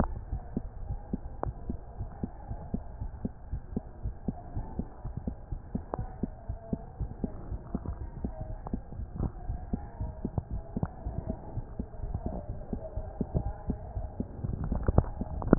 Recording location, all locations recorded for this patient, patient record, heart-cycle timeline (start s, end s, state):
aortic valve (AV)
aortic valve (AV)+pulmonary valve (PV)+tricuspid valve (TV)+mitral valve (MV)
#Age: Child
#Sex: Female
#Height: 113.0 cm
#Weight: 17.3 kg
#Pregnancy status: False
#Murmur: Absent
#Murmur locations: nan
#Most audible location: nan
#Systolic murmur timing: nan
#Systolic murmur shape: nan
#Systolic murmur grading: nan
#Systolic murmur pitch: nan
#Systolic murmur quality: nan
#Diastolic murmur timing: nan
#Diastolic murmur shape: nan
#Diastolic murmur grading: nan
#Diastolic murmur pitch: nan
#Diastolic murmur quality: nan
#Outcome: Normal
#Campaign: 2015 screening campaign
0.16	0.30	diastole
0.30	0.42	S1
0.42	0.54	systole
0.54	0.70	S2
0.70	0.86	diastole
0.86	1.00	S1
1.00	1.10	systole
1.10	1.20	S2
1.20	1.42	diastole
1.42	1.54	S1
1.54	1.66	systole
1.66	1.80	S2
1.80	1.98	diastole
1.98	2.10	S1
2.10	2.20	systole
2.20	2.30	S2
2.30	2.48	diastole
2.48	2.58	S1
2.58	2.70	systole
2.70	2.84	S2
2.84	2.98	diastole
2.98	3.12	S1
3.12	3.22	systole
3.22	3.32	S2
3.32	3.50	diastole
3.50	3.64	S1
3.64	3.72	systole
3.72	3.84	S2
3.84	4.02	diastole
4.02	4.14	S1
4.14	4.24	systole
4.24	4.36	S2
4.36	4.54	diastole
4.54	4.66	S1
4.66	4.76	systole
4.76	4.86	S2
4.86	5.06	diastole
5.06	5.14	S1
5.14	5.26	systole
5.26	5.36	S2
5.36	5.50	diastole
5.50	5.60	S1
5.60	5.72	systole
5.72	5.82	S2
5.82	5.98	diastole
5.98	6.10	S1
6.10	6.22	systole
6.22	6.32	S2
6.32	6.48	diastole
6.48	6.58	S1
6.58	6.72	systole
6.72	6.82	S2
6.82	7.02	diastole
7.02	7.12	S1
7.12	7.22	systole
7.22	7.30	S2
7.30	7.50	diastole
7.50	7.60	S1
7.60	7.72	systole
7.72	7.84	S2
7.84	8.00	diastole
8.00	8.10	S1
8.10	8.22	systole
8.22	8.34	S2
8.34	8.50	diastole
8.50	8.60	S1
8.60	8.70	systole
8.70	8.80	S2
8.80	8.96	diastole
8.96	9.08	S1
9.08	9.18	systole
9.18	9.32	S2
9.32	9.46	diastole
9.46	9.62	S1
9.62	9.70	systole
9.70	9.86	S2
9.86	10.00	diastole
10.00	10.12	S1
10.12	10.22	systole
10.22	10.32	S2
10.32	10.52	diastole
10.52	10.64	S1
10.64	10.76	systole
10.76	10.90	S2
10.90	11.04	diastole
11.04	11.16	S1
11.16	11.28	systole
11.28	11.38	S2
11.38	11.56	diastole
11.56	11.66	S1
11.66	11.78	systole
11.78	11.86	S2
11.86	12.00	diastole